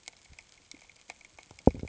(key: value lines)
label: ambient
recorder: HydroMoth